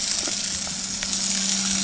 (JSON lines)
{"label": "anthrophony, boat engine", "recorder": "HydroMoth"}